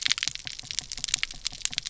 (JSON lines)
{"label": "biophony", "recorder": "SoundTrap 300"}